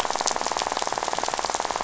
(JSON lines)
{"label": "biophony, rattle", "recorder": "SoundTrap 500"}